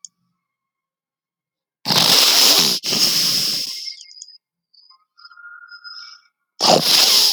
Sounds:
Sneeze